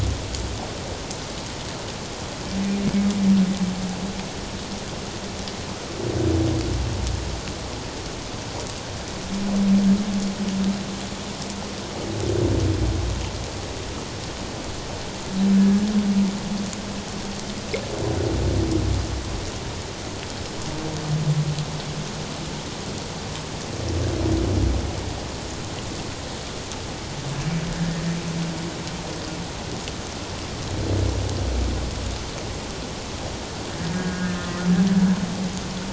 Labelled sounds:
15.6	15.9	humpback whale, 1.6 to 1.8 kHz
33.8	34.7	humpback whale, 1.2 to 1.8 kHz

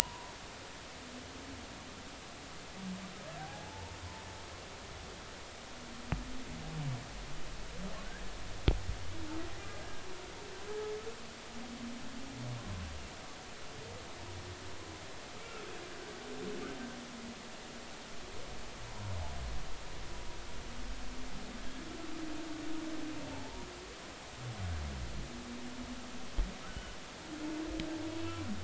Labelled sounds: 1.0	1.3	humpback whale, 0.90 to 1.1 kHz
3.4	4.0	humpback whale, 0.80 to 0.96 kHz
23.3	23.7	humpback whale, 0.83 to 1.1 kHz
26.6	27.0	humpback whale, 1.3 to 3.0 kHz

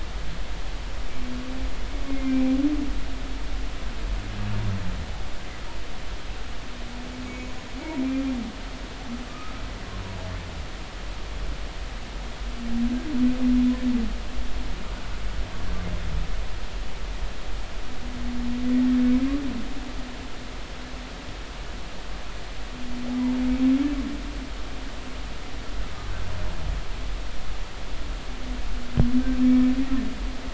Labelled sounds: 2.1	2.4	humpback whale, 2.0 to 2.2 kHz
7.3	7.6	humpback whale, 2.1 to 6.9 kHz
9.3	9.5	humpback whale, 1.2 to 1.3 kHz

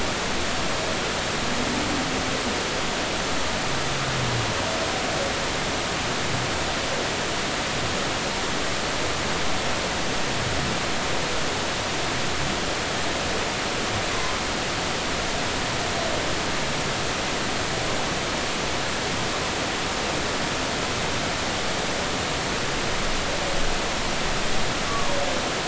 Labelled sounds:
14.1	14.4	humpback whale, 0.96 to 1.1 kHz
24.9	25.1	humpback whale, 1.1 to 1.2 kHz

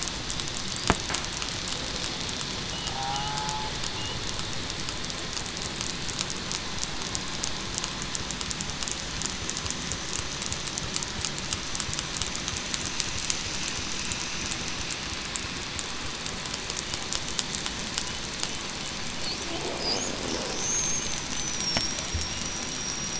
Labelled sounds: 2.9	3.3	killer whale, southern resident, 0.89 to 0.98 kHz
20.7	22.1	killer whale, southern resident, 5.4 to 8.0 kHz
22.6	23.1	killer whale, southern resident, 5.6 to 8.0 kHz

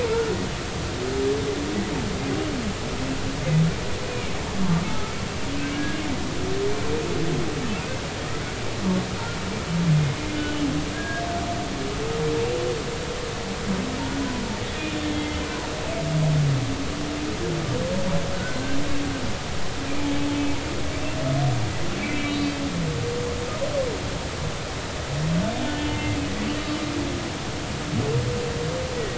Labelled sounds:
0.1	0.4	humpback whale, 1.3 to 1.5 kHz
5.8	6.0	humpback whale, 1.6 to 1.7 kHz
10.4	11.2	humpback whale, 1.6 to 3.0 kHz
15.1	15.4	humpback whale, 2.0 to 2.1 kHz
18.3	18.6	humpback whale, 1.4 to 1.6 kHz
22.0	22.6	humpback whale, 2.2 to 4.6 kHz
25.6	26.2	humpback whale, 2.0 to 3.0 kHz

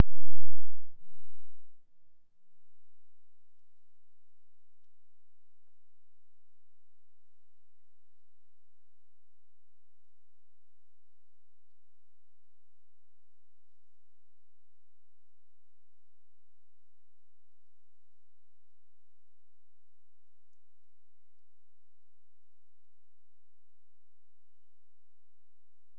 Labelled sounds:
7.3	9.1	killer whale, Bigg's (transient), Gulf of Alaska transient, 1.4 to 3.0 kHz

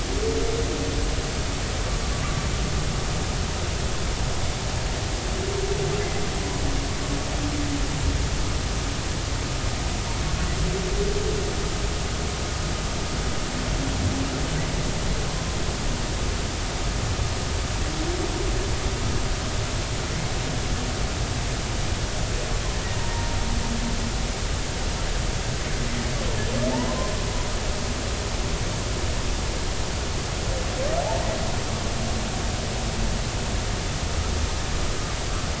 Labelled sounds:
23.1	23.4	humpback whale, 0.90 to 0.99 kHz

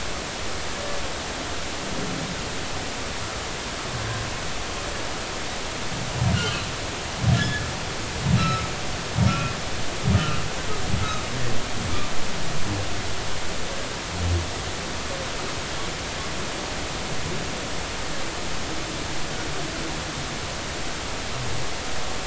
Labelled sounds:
6.3	7.7	humpback whale, 1.6 to 4.3 kHz
8.4	9.5	humpback whale, 1.2 to 5.3 kHz

